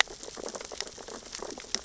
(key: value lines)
label: biophony, sea urchins (Echinidae)
recorder: SoundTrap 600 or HydroMoth